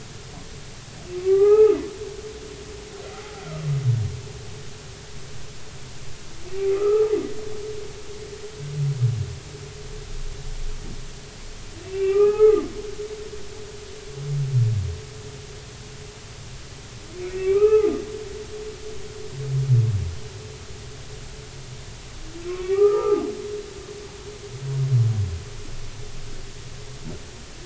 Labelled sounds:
1.2	1.8	humpback whale, 0.80 to 2.7 kHz
3.1	3.4	humpback whale, 0.80 to 0.90 kHz
6.7	7.1	humpback whale, 1.2 to 1.4 kHz
11.8	12.6	humpback whale, 0.80 to 2.8 kHz
17.3	18.0	humpback whale, 0.80 to 2.7 kHz
22.5	23.2	humpback whale, 0.80 to 2.5 kHz

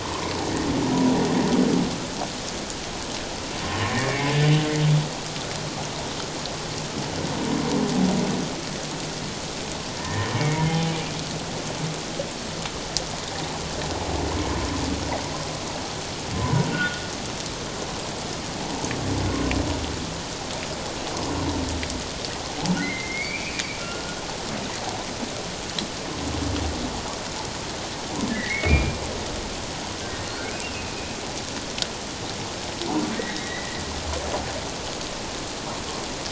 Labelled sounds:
0.0	0.3	humpback whale, 0.88 to 1.2 kHz
3.9	4.3	humpback whale, 2.1 to 2.4 kHz
10.0	10.9	humpback whale, 0.78 to 2.3 kHz
16.3	17.0	humpback whale, 0.91 to 1.5 kHz
22.8	24.2	humpback whale, 1.3 to 2.6 kHz
28.3	29.0	humpback whale, 1.7 to 2.6 kHz
30.3	30.7	humpback whale, 1.3 to 2.6 kHz
33.2	33.8	humpback whale, 1.8 to 3.9 kHz

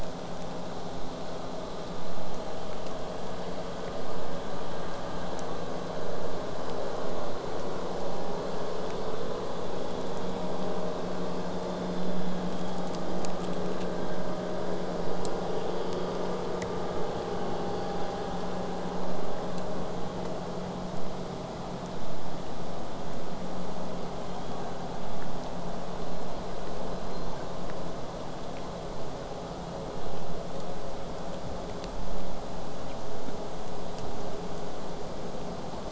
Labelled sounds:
0.0	4.5	killer whale, southern resident, J pod, 4.1 to 8.0 kHz
24.2	25.0	killer whale, southern resident, J pod, 0.56 to 4.6 kHz
26.9	27.5	killer whale, southern resident, J pod, 1.3 to 5.3 kHz

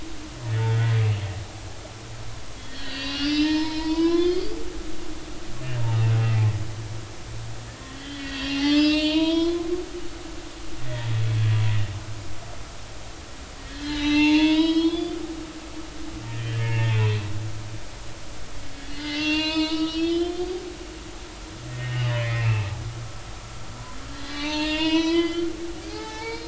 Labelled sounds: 0.7	1.0	humpback whale, 1.9 to 2.0 kHz
2.5	4.5	humpback whale, 0.86 to 5.5 kHz
7.7	9.7	humpback whale, 0.80 to 5.2 kHz
13.7	15.2	humpback whale, 0.83 to 6.3 kHz
16.4	16.9	humpback whale, 1.7 to 3.2 kHz
18.9	22.7	humpback whale, 0.90 to 6.3 kHz
24.3	26.4	humpback whale, 0.80 to 6.2 kHz

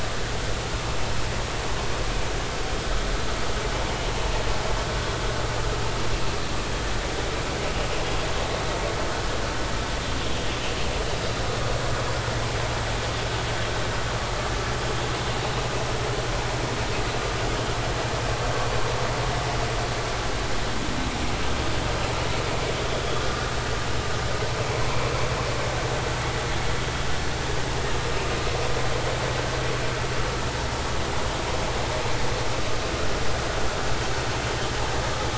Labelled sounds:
23.2	23.5	vessel noise, 1.4 to 1.7 kHz

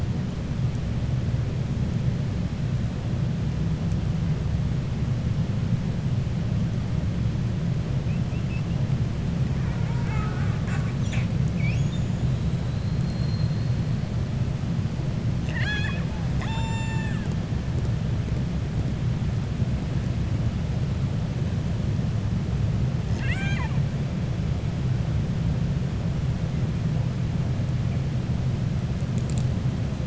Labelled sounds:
9.6	11.3	killer whale, 0.73 to 7.5 kHz
15.3	17.4	killer whale, 0.82 to 8.0 kHz
23.0	23.8	killer whale, 0.85 to 7.9 kHz

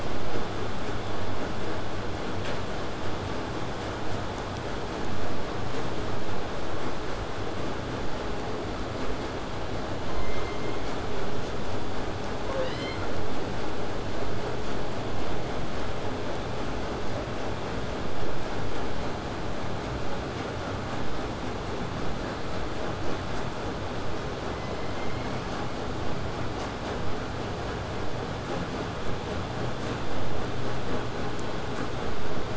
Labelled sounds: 0.0	5.0	vessel noise, 0 to 8.0 kHz
10.1	11.3	killer whale, southern resident, J pod, call S01, 1.7 to 8.0 kHz

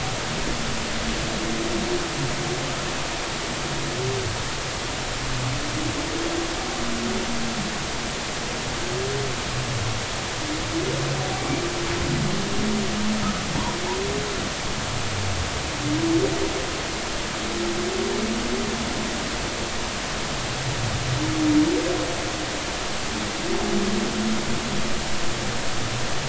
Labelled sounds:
11.3	11.6	humpback whale, 2.2 to 2.4 kHz

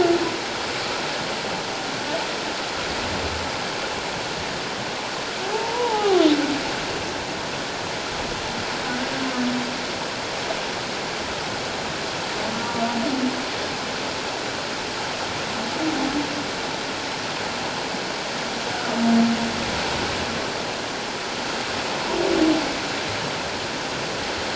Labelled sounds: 5.5	6.2	humpback whale, 0.78 to 1.3 kHz

